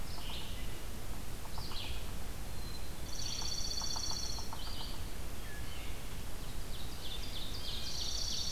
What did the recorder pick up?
Red-eyed Vireo, Yellow-bellied Sapsucker, Black-capped Chickadee, Dark-eyed Junco, Wood Thrush, Ovenbird, Blue Jay